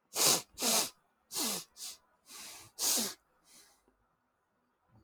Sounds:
Sniff